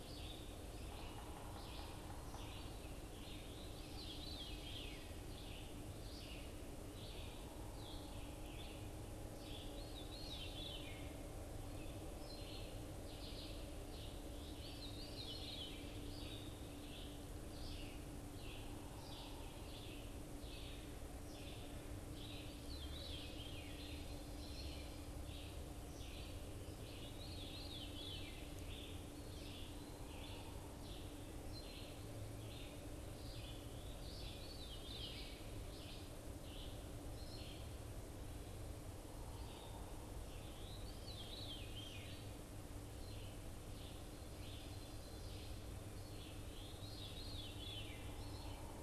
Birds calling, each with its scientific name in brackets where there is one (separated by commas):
Yellow-bellied Sapsucker (Sphyrapicus varius), Red-eyed Vireo (Vireo olivaceus), Veery (Catharus fuscescens)